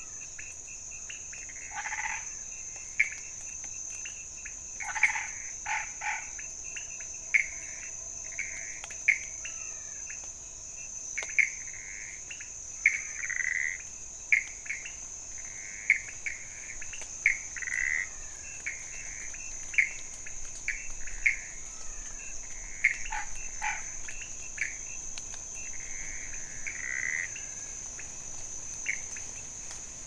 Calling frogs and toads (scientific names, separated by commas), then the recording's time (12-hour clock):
Leptodactylus podicipinus, Boana raniceps, Pithecopus azureus, Scinax fuscovarius, Physalaemus albonotatus
12:00am